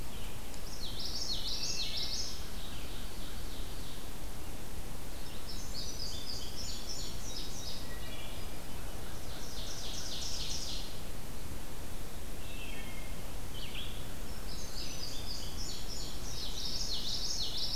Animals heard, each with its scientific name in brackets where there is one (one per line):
Wood Thrush (Hylocichla mustelina)
Ovenbird (Seiurus aurocapilla)
Common Yellowthroat (Geothlypis trichas)
Indigo Bunting (Passerina cyanea)
Red-eyed Vireo (Vireo olivaceus)